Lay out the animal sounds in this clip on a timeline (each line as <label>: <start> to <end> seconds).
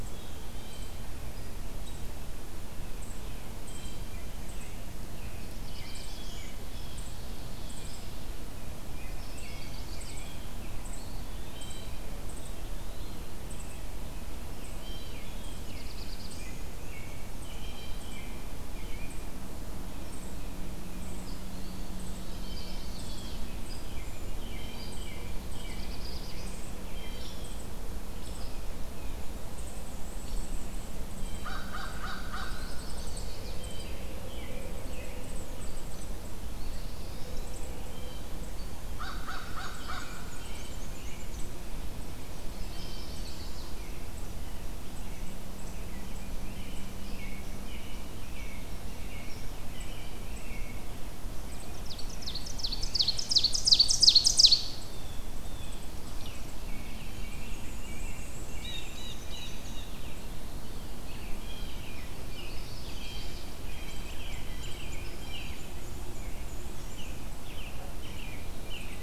Eastern Wood-Pewee (Contopus virens): 0.0 to 0.9 seconds
Blue Jay (Cyanocitta cristata): 0.3 to 4.1 seconds
American Robin (Turdus migratorius): 3.9 to 6.7 seconds
Black-throated Blue Warbler (Setophaga caerulescens): 5.3 to 6.6 seconds
Blue Jay (Cyanocitta cristata): 6.6 to 8.1 seconds
American Robin (Turdus migratorius): 8.8 to 11.2 seconds
Chestnut-sided Warbler (Setophaga pensylvanica): 9.3 to 10.3 seconds
Eastern Wood-Pewee (Contopus virens): 11.0 to 13.2 seconds
Blue Jay (Cyanocitta cristata): 11.3 to 12.0 seconds
Blue Jay (Cyanocitta cristata): 14.6 to 18.1 seconds
American Robin (Turdus migratorius): 15.0 to 19.3 seconds
Black-throated Blue Warbler (Setophaga caerulescens): 15.2 to 16.6 seconds
Tufted Titmouse (Baeolophus bicolor): 19.9 to 21.2 seconds
Eastern Wood-Pewee (Contopus virens): 21.5 to 22.7 seconds
Chestnut-sided Warbler (Setophaga pensylvanica): 22.3 to 23.5 seconds
Blue Jay (Cyanocitta cristata): 22.7 to 23.5 seconds
American Robin (Turdus migratorius): 23.7 to 27.3 seconds
Hairy Woodpecker (Dryobates villosus): 24.7 to 24.9 seconds
Black-throated Blue Warbler (Setophaga caerulescens): 25.4 to 26.7 seconds
Blue Jay (Cyanocitta cristata): 26.9 to 27.6 seconds
Hairy Woodpecker (Dryobates villosus): 27.2 to 27.3 seconds
Hairy Woodpecker (Dryobates villosus): 28.1 to 28.4 seconds
Tufted Titmouse (Baeolophus bicolor): 28.4 to 29.2 seconds
Hairy Woodpecker (Dryobates villosus): 30.2 to 30.4 seconds
Blue Jay (Cyanocitta cristata): 31.1 to 31.7 seconds
American Crow (Corvus brachyrhynchos): 31.3 to 32.5 seconds
Chestnut-sided Warbler (Setophaga pensylvanica): 32.3 to 33.6 seconds
Blue Jay (Cyanocitta cristata): 33.6 to 34.0 seconds
American Robin (Turdus migratorius): 33.7 to 35.3 seconds
Hairy Woodpecker (Dryobates villosus): 35.8 to 36.1 seconds
Eastern Wood-Pewee (Contopus virens): 36.4 to 37.7 seconds
Blue Jay (Cyanocitta cristata): 37.8 to 38.4 seconds
American Crow (Corvus brachyrhynchos): 38.8 to 40.2 seconds
Black-and-white Warbler (Mniotilta varia): 39.3 to 41.5 seconds
American Robin (Turdus migratorius): 39.7 to 41.4 seconds
Chestnut-sided Warbler (Setophaga pensylvanica): 42.5 to 43.7 seconds
Blue Jay (Cyanocitta cristata): 42.6 to 43.3 seconds
American Robin (Turdus migratorius): 43.8 to 50.9 seconds
Ovenbird (Seiurus aurocapilla): 51.2 to 54.8 seconds
American Robin (Turdus migratorius): 51.4 to 53.1 seconds
Blue Jay (Cyanocitta cristata): 54.8 to 55.9 seconds
Hairy Woodpecker (Dryobates villosus): 56.1 to 56.3 seconds
American Robin (Turdus migratorius): 56.6 to 58.9 seconds
Black-and-white Warbler (Mniotilta varia): 57.5 to 59.9 seconds
Blue Jay (Cyanocitta cristata): 58.5 to 60.0 seconds
Black-throated Blue Warbler (Setophaga caerulescens): 59.9 to 60.9 seconds
American Robin (Turdus migratorius): 61.0 to 65.7 seconds
Blue Jay (Cyanocitta cristata): 61.4 to 65.6 seconds
Chestnut-sided Warbler (Setophaga pensylvanica): 62.1 to 63.5 seconds
Black-and-white Warbler (Mniotilta varia): 65.0 to 67.6 seconds
American Robin (Turdus migratorius): 66.9 to 69.0 seconds